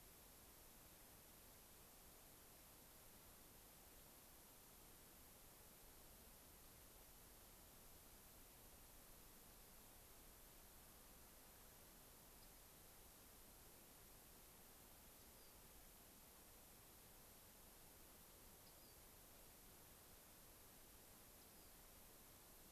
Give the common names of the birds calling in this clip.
Rock Wren